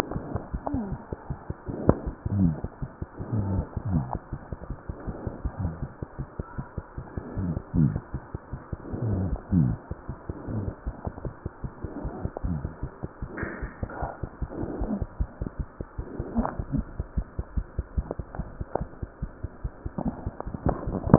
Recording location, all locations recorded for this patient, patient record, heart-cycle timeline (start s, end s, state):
aortic valve (AV)
aortic valve (AV)+mitral valve (MV)
#Age: Infant
#Sex: Female
#Height: 68.0 cm
#Weight: 8.385 kg
#Pregnancy status: False
#Murmur: Absent
#Murmur locations: nan
#Most audible location: nan
#Systolic murmur timing: nan
#Systolic murmur shape: nan
#Systolic murmur grading: nan
#Systolic murmur pitch: nan
#Systolic murmur quality: nan
#Diastolic murmur timing: nan
#Diastolic murmur shape: nan
#Diastolic murmur grading: nan
#Diastolic murmur pitch: nan
#Diastolic murmur quality: nan
#Outcome: Abnormal
#Campaign: 2015 screening campaign
0.00	6.56	unannotated
6.56	6.64	S1
6.64	6.76	systole
6.76	6.81	S2
6.81	6.95	diastole
6.95	7.04	S1
7.04	7.16	systole
7.16	7.20	S2
7.20	7.35	diastole
7.35	7.41	S1
7.41	7.55	systole
7.55	7.59	S2
7.59	7.73	diastole
7.73	8.11	unannotated
8.11	8.19	S1
8.19	8.31	systole
8.31	8.38	S2
8.38	8.51	diastole
8.51	8.60	S1
8.60	8.70	systole
8.70	8.75	S2
8.75	8.90	diastole
8.90	8.97	S1
8.97	10.07	unannotated
10.07	10.14	S1
10.14	10.27	systole
10.27	10.32	S2
10.32	10.46	diastole
10.46	10.52	S1
10.52	10.67	systole
10.67	10.71	S2
10.71	10.85	diastole
10.85	10.92	S1
10.92	11.04	systole
11.04	11.10	S2
11.10	11.24	diastole
11.24	11.30	S1
11.30	11.43	systole
11.43	11.49	S2
11.49	11.62	diastole
11.62	11.67	S1
11.67	11.83	systole
11.83	11.86	S2
11.86	12.03	diastole
12.03	12.10	S1
12.10	12.23	systole
12.23	12.28	S2
12.28	12.43	diastole
12.43	21.18	unannotated